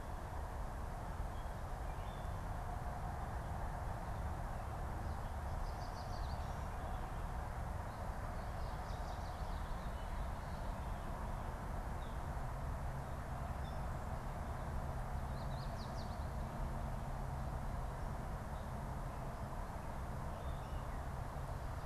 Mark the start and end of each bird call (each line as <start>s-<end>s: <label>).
5.5s-6.6s: Yellow Warbler (Setophaga petechia)
15.1s-16.5s: Yellow Warbler (Setophaga petechia)